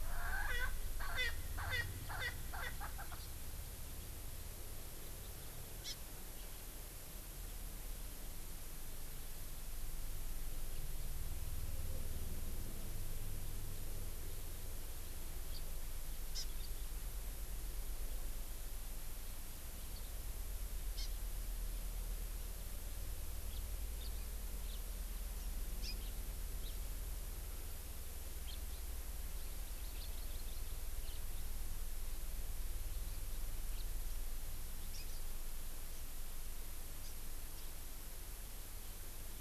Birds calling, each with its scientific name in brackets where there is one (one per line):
Hawaii Amakihi (Chlorodrepanis virens)
Erckel's Francolin (Pternistis erckelii)
House Finch (Haemorhous mexicanus)